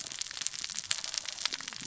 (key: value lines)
label: biophony, cascading saw
recorder: SoundTrap 600 or HydroMoth